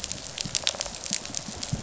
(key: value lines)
label: biophony, rattle response
recorder: SoundTrap 500